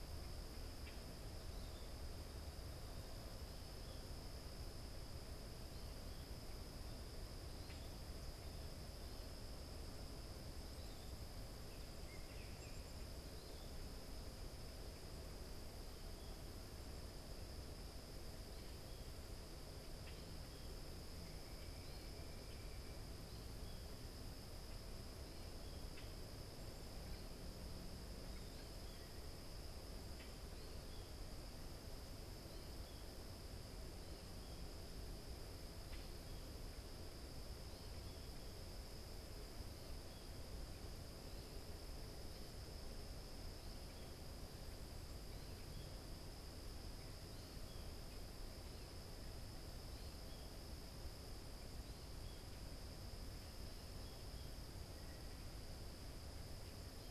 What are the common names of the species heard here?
Common Grackle, Baltimore Oriole, Black-capped Chickadee